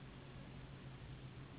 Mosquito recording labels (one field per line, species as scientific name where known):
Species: Anopheles gambiae s.s.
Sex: female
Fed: unfed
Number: one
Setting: insect culture